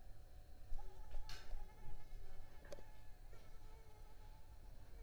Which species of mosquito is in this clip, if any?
Mansonia africanus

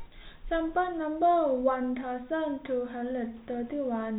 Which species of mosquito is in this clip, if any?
no mosquito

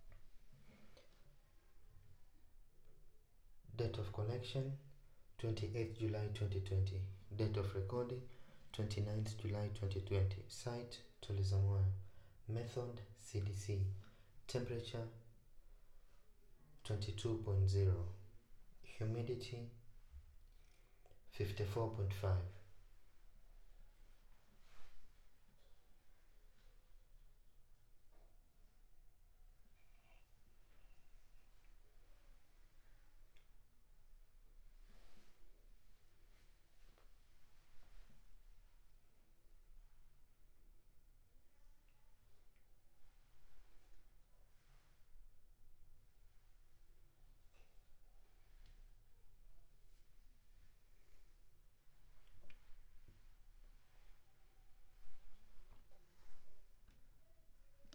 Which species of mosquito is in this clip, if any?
no mosquito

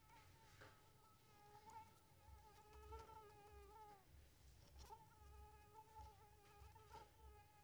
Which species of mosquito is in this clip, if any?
Anopheles coustani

